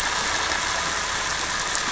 {"label": "anthrophony, boat engine", "recorder": "SoundTrap 300"}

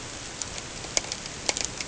{"label": "ambient", "recorder": "HydroMoth"}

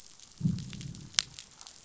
{"label": "biophony, growl", "recorder": "SoundTrap 500"}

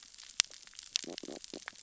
{"label": "biophony, stridulation", "recorder": "SoundTrap 600 or HydroMoth"}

